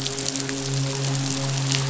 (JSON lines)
{"label": "biophony, midshipman", "recorder": "SoundTrap 500"}